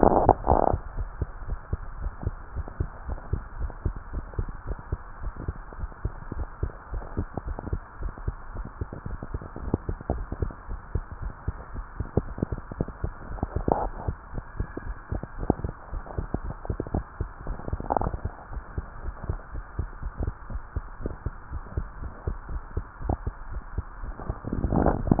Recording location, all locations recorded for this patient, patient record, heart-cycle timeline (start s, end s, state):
tricuspid valve (TV)
aortic valve (AV)+pulmonary valve (PV)+tricuspid valve (TV)+mitral valve (MV)
#Age: Child
#Sex: Female
#Height: 136.0 cm
#Weight: 33.9 kg
#Pregnancy status: False
#Murmur: Absent
#Murmur locations: nan
#Most audible location: nan
#Systolic murmur timing: nan
#Systolic murmur shape: nan
#Systolic murmur grading: nan
#Systolic murmur pitch: nan
#Systolic murmur quality: nan
#Diastolic murmur timing: nan
#Diastolic murmur shape: nan
#Diastolic murmur grading: nan
#Diastolic murmur pitch: nan
#Diastolic murmur quality: nan
#Outcome: Normal
#Campaign: 2015 screening campaign
0.00	0.87	unannotated
0.87	0.98	diastole
0.98	1.10	S1
1.10	1.18	systole
1.18	1.32	S2
1.32	1.46	diastole
1.46	1.62	S1
1.62	1.72	systole
1.72	1.84	S2
1.84	2.00	diastole
2.00	2.16	S1
2.16	2.23	systole
2.23	2.36	S2
2.36	2.54	diastole
2.54	2.66	S1
2.66	2.76	systole
2.76	2.90	S2
2.90	3.06	diastole
3.06	3.18	S1
3.18	3.30	systole
3.30	3.44	S2
3.44	3.58	diastole
3.58	3.74	S1
3.74	3.84	systole
3.84	3.98	S2
3.98	4.11	diastole
4.11	4.28	S1
4.28	4.36	systole
4.36	4.50	S2
4.50	4.68	diastole
4.68	4.78	S1
4.78	4.90	systole
4.90	5.00	S2
5.00	5.20	diastole
5.20	5.34	S1
5.34	5.44	systole
5.44	5.56	S2
5.56	5.76	diastole
5.76	5.90	S1
5.90	6.02	systole
6.02	6.16	S2
6.16	6.36	diastole
6.36	6.48	S1
6.48	6.60	systole
6.60	6.74	S2
6.74	6.90	diastole
6.90	7.04	S1
7.04	7.14	systole
7.14	7.28	S2
7.28	7.44	diastole
7.44	7.58	S1
7.58	7.68	systole
7.68	7.80	S2
7.80	7.98	diastole
7.98	8.12	S1
8.12	8.24	systole
8.24	8.38	S2
8.38	8.53	diastole
8.53	8.66	S1
8.66	8.78	systole
8.78	8.88	S2
8.88	9.06	diastole
9.06	9.20	S1
9.20	9.32	systole
9.32	9.42	S2
9.42	9.62	diastole
9.62	9.78	S1
9.78	9.88	systole
9.88	9.98	S2
9.98	10.14	diastole
10.14	10.28	S1
10.28	10.40	systole
10.40	10.52	S2
10.52	10.70	diastole
10.70	10.80	S1
10.80	10.92	systole
10.92	11.06	S2
11.06	11.22	diastole
11.22	11.32	S1
11.32	11.44	systole
11.44	11.56	S2
11.56	11.74	diastole
11.74	11.86	S1
11.86	11.97	systole
11.97	12.05	S2
12.05	12.22	diastole
12.22	12.37	S1
12.37	12.48	systole
12.48	12.58	S2
12.58	12.78	diastole
12.78	12.91	S1
12.91	13.00	systole
13.00	13.14	S2
13.14	13.28	diastole
13.28	13.40	S1
13.40	13.54	systole
13.54	13.66	S2
13.66	13.84	diastole
13.84	13.98	S1
13.98	14.06	systole
14.06	14.16	S2
14.16	14.34	diastole
14.34	14.44	S1
14.44	14.56	systole
14.56	14.68	S2
14.68	14.86	diastole
14.86	14.98	S1
14.98	15.12	systole
15.12	15.22	S2
15.22	15.40	diastole
15.40	15.56	S1
15.56	15.62	systole
15.62	15.74	S2
15.74	15.90	diastole
15.90	16.04	S1
16.04	16.16	systole
16.16	16.28	S2
16.28	16.42	diastole
16.42	16.56	S1
16.56	16.66	systole
16.66	16.78	S2
16.78	16.92	diastole
16.92	17.04	S1
17.04	17.18	systole
17.18	17.32	S2
17.32	17.46	diastole
17.46	17.58	S1
17.58	17.68	systole
17.68	17.80	S2
17.80	17.96	diastole
17.96	18.14	S1
18.14	18.22	systole
18.22	18.32	S2
18.32	18.52	diastole
18.52	18.64	S1
18.64	18.76	systole
18.76	18.86	S2
18.86	19.02	diastole
19.02	19.16	S1
19.16	19.28	systole
19.28	19.40	S2
19.40	19.54	diastole
19.54	19.64	S1
19.64	19.76	systole
19.76	19.90	S2
19.90	20.04	diastole
20.04	20.14	S1
20.14	20.24	systole
20.24	20.34	S2
20.34	20.52	diastole
20.52	20.62	S1
20.62	20.74	systole
20.74	20.84	S2
20.84	21.02	diastole
21.02	21.12	S1
21.12	21.24	systole
21.24	21.34	S2
21.34	21.52	diastole
21.52	21.64	S1
21.64	21.76	systole
21.76	21.88	S2
21.88	22.02	diastole
22.02	22.10	S1
22.10	22.24	systole
22.24	22.38	S2
22.38	22.52	diastole
22.52	22.64	S1
22.64	22.74	systole
22.74	22.88	S2
22.88	23.04	diastole
23.04	25.20	unannotated